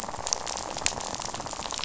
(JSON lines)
{"label": "biophony, rattle", "recorder": "SoundTrap 500"}